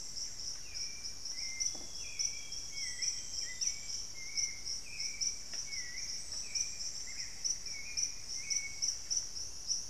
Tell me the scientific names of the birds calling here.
Formicarius analis, Turdus hauxwelli, Cantorchilus leucotis, Cyanoloxia rothschildii, unidentified bird